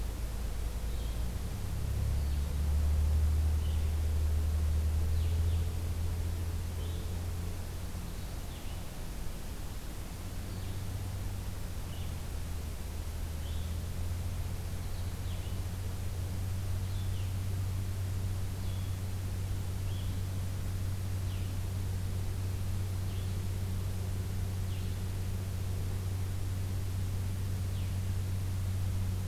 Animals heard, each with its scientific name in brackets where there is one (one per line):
Blue-headed Vireo (Vireo solitarius)